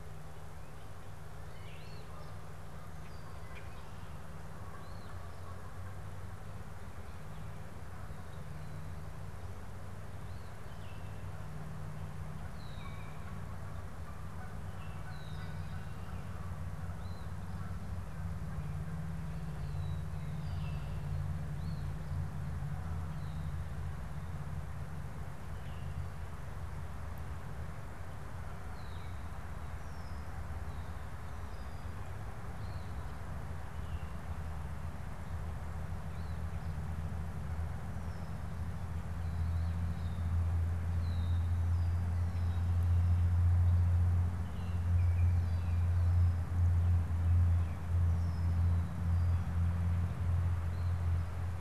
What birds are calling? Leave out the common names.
Sayornis phoebe, Branta canadensis, Icterus galbula, Agelaius phoeniceus